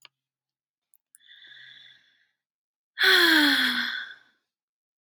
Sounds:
Sigh